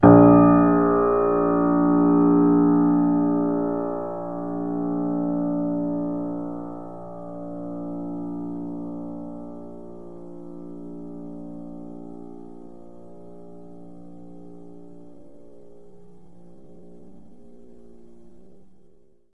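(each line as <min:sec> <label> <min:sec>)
0:00.0 A piano plays a single isolated note. 0:19.3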